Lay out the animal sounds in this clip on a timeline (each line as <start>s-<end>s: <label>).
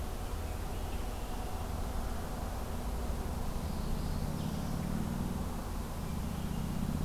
0.3s-1.7s: Red-winged Blackbird (Agelaius phoeniceus)
3.6s-4.7s: Northern Parula (Setophaga americana)